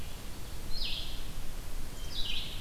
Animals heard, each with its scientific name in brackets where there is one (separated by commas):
Black-capped Chickadee (Poecile atricapillus), Red-eyed Vireo (Vireo olivaceus)